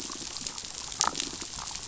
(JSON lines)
{"label": "biophony, damselfish", "recorder": "SoundTrap 500"}